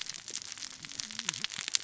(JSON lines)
{"label": "biophony, cascading saw", "recorder": "SoundTrap 600 or HydroMoth"}